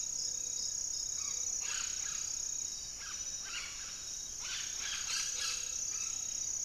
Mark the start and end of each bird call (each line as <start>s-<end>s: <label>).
0.0s-6.6s: Amazonian Trogon (Trogon ramonianus)
0.0s-6.6s: Gray-fronted Dove (Leptotila rufaxilla)